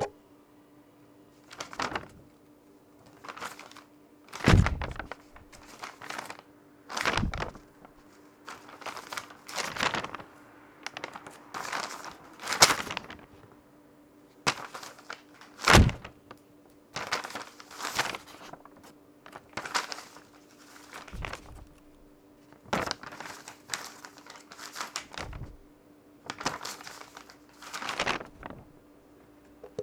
Is there an animal chirping?
no